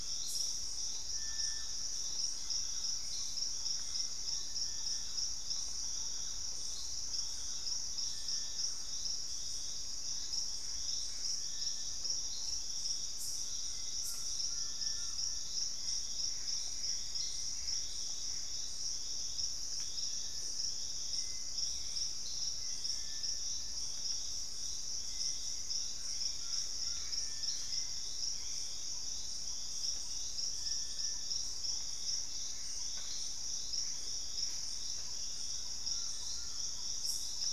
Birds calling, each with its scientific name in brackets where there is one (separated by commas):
Hauxwell's Thrush (Turdus hauxwelli), Little Tinamou (Crypturellus soui), Thrush-like Wren (Campylorhynchus turdinus), Gray Antbird (Cercomacra cinerascens), Collared Trogon (Trogon collaris), Purple-throated Fruitcrow (Querula purpurata)